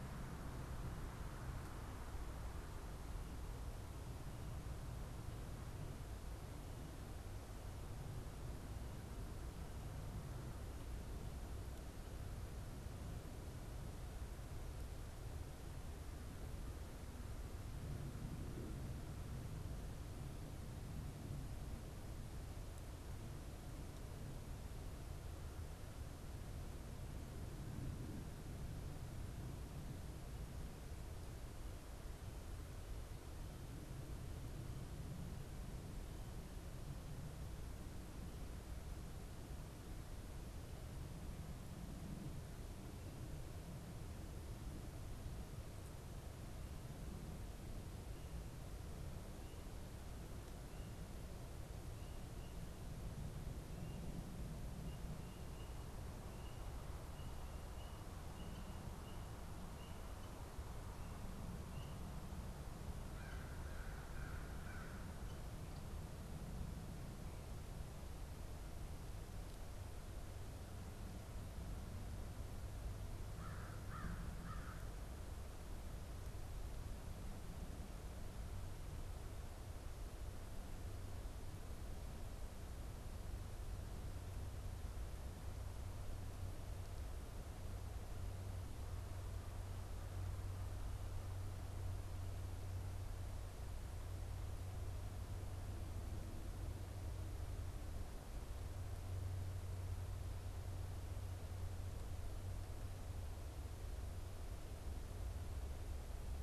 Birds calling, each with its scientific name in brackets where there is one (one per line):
American Crow (Corvus brachyrhynchos)